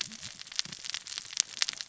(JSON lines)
{"label": "biophony, cascading saw", "recorder": "SoundTrap 600 or HydroMoth"}